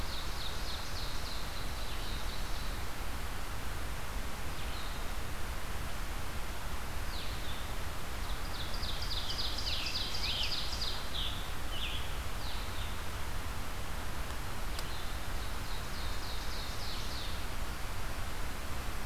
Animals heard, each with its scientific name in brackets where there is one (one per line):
Ovenbird (Seiurus aurocapilla)
Blue-headed Vireo (Vireo solitarius)
Scarlet Tanager (Piranga olivacea)